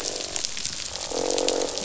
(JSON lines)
{"label": "biophony, croak", "recorder": "SoundTrap 500"}